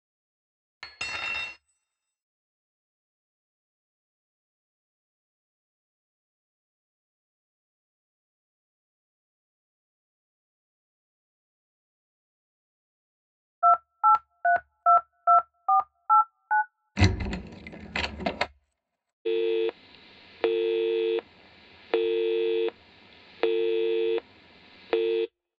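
First cutlery can be heard. Then a telephone is audible. Next, you can hear a door. Finally, there is the sound of a telephone.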